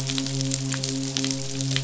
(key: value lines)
label: biophony, midshipman
recorder: SoundTrap 500